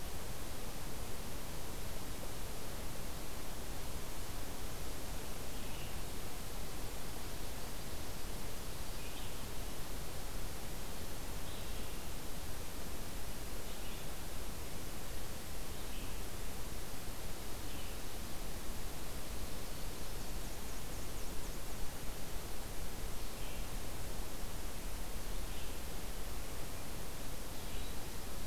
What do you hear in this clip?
Red-eyed Vireo, Black-and-white Warbler